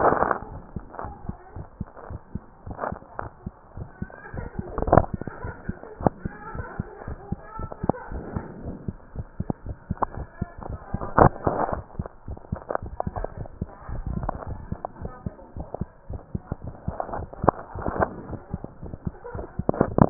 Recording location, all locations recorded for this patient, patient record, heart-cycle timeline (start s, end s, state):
mitral valve (MV)
aortic valve (AV)+pulmonary valve (PV)+tricuspid valve (TV)+mitral valve (MV)
#Age: Child
#Sex: Male
#Height: 131.0 cm
#Weight: 34.2 kg
#Pregnancy status: False
#Murmur: Unknown
#Murmur locations: nan
#Most audible location: nan
#Systolic murmur timing: nan
#Systolic murmur shape: nan
#Systolic murmur grading: nan
#Systolic murmur pitch: nan
#Systolic murmur quality: nan
#Diastolic murmur timing: nan
#Diastolic murmur shape: nan
#Diastolic murmur grading: nan
#Diastolic murmur pitch: nan
#Diastolic murmur quality: nan
#Outcome: Normal
#Campaign: 2015 screening campaign
0.00	1.04	unannotated
1.04	1.16	S1
1.16	1.24	systole
1.24	1.36	S2
1.36	1.55	diastole
1.55	1.66	S1
1.66	1.76	systole
1.76	1.88	S2
1.88	2.09	diastole
2.09	2.20	S1
2.20	2.32	systole
2.32	2.42	S2
2.42	2.66	diastole
2.66	2.78	S1
2.78	2.88	systole
2.88	2.98	S2
2.98	3.20	diastole
3.20	3.32	S1
3.32	3.42	systole
3.42	3.52	S2
3.52	3.73	diastole
3.73	3.88	S1
3.88	3.98	systole
3.98	4.12	S2
4.12	4.34	diastole
4.34	4.49	S1
4.49	4.57	systole
4.57	4.66	S2
4.66	4.86	diastole
4.86	5.01	S1
5.01	5.10	systole
5.10	5.22	S2
5.22	5.42	diastole
5.42	5.56	S1
5.56	5.66	systole
5.66	5.76	S2
5.76	6.00	diastole
6.00	6.14	S1
6.14	6.22	systole
6.22	6.32	S2
6.32	6.54	diastole
6.54	6.66	S1
6.66	6.76	systole
6.76	6.88	S2
6.88	7.06	diastole
7.06	7.20	S1
7.20	7.30	systole
7.30	7.42	S2
7.42	7.58	diastole
7.58	7.70	S1
7.70	7.80	systole
7.80	7.94	S2
7.94	8.11	diastole
8.11	8.26	S1
8.26	8.34	systole
8.34	8.44	S2
8.44	8.64	diastole
8.64	8.78	S1
8.78	8.86	systole
8.86	8.98	S2
8.98	9.15	diastole
9.15	9.28	S1
9.28	9.36	systole
9.36	9.48	S2
9.48	9.65	diastole
9.65	9.78	S1
9.78	9.86	systole
9.86	9.98	S2
9.98	10.05	diastole
10.05	20.10	unannotated